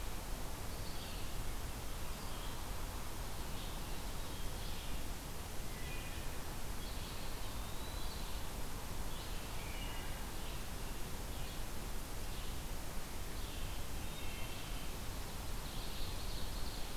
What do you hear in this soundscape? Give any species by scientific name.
Vireo olivaceus, Hylocichla mustelina, Contopus virens, Seiurus aurocapilla